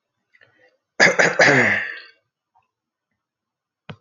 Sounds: Throat clearing